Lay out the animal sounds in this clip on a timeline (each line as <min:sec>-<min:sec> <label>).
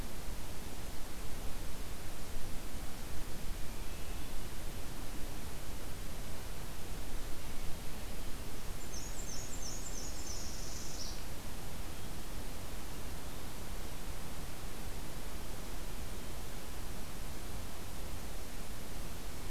0:03.5-0:04.5 Hermit Thrush (Catharus guttatus)
0:08.6-0:10.4 Black-and-white Warbler (Mniotilta varia)
0:09.8-0:11.2 Northern Parula (Setophaga americana)